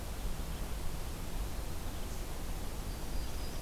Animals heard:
Yellow-rumped Warbler (Setophaga coronata)

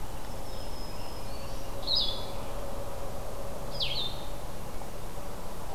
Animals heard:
American Robin (Turdus migratorius), Blue-headed Vireo (Vireo solitarius), Black-throated Green Warbler (Setophaga virens)

